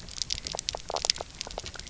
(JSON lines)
{"label": "biophony, knock croak", "recorder": "SoundTrap 300"}